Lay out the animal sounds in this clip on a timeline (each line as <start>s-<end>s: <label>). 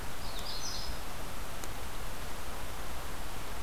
0.1s-1.0s: Magnolia Warbler (Setophaga magnolia)